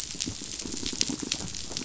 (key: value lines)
label: biophony, rattle response
recorder: SoundTrap 500